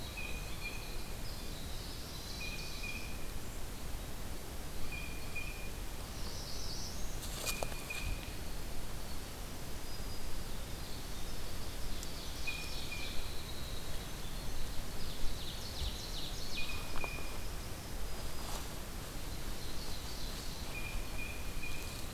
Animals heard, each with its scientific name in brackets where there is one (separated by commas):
Ovenbird (Seiurus aurocapilla), Blue Jay (Cyanocitta cristata), Winter Wren (Troglodytes hiemalis), Northern Parula (Setophaga americana)